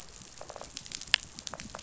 {"label": "biophony", "recorder": "SoundTrap 500"}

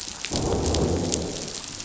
{"label": "biophony, growl", "recorder": "SoundTrap 500"}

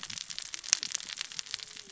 {"label": "biophony, cascading saw", "recorder": "SoundTrap 600 or HydroMoth"}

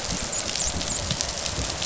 {"label": "biophony, dolphin", "recorder": "SoundTrap 500"}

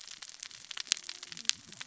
{"label": "biophony, cascading saw", "recorder": "SoundTrap 600 or HydroMoth"}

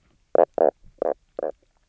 {"label": "biophony, knock croak", "recorder": "SoundTrap 300"}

